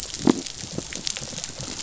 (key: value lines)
label: biophony
recorder: SoundTrap 500